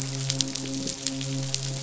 {"label": "biophony, midshipman", "recorder": "SoundTrap 500"}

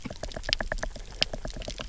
{"label": "biophony, knock", "recorder": "SoundTrap 300"}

